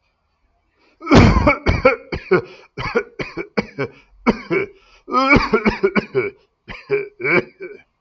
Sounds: Cough